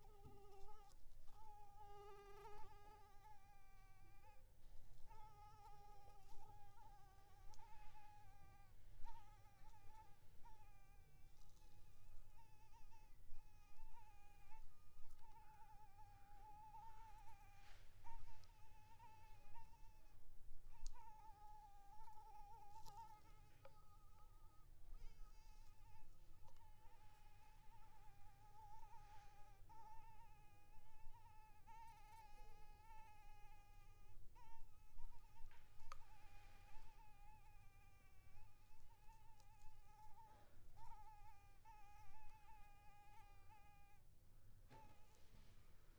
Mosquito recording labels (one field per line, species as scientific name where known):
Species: Anopheles maculipalpis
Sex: female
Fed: blood-fed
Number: one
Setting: cup